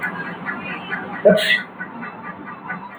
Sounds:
Sneeze